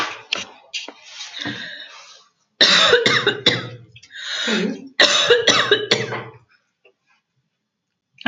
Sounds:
Cough